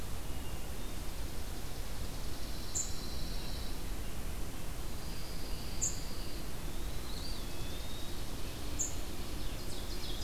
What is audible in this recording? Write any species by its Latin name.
Catharus guttatus, Spizella passerina, Setophaga pinus, unidentified call, Sitta canadensis, Contopus virens, Seiurus aurocapilla